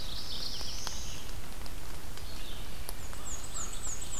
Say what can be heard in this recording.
Mourning Warbler, Black-throated Blue Warbler, Red-eyed Vireo, Black-and-white Warbler, American Crow